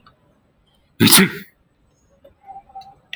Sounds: Sneeze